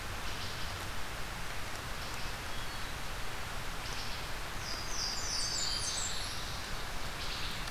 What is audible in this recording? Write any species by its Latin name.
Hylocichla mustelina, Catharus guttatus, Parkesia motacilla, Setophaga fusca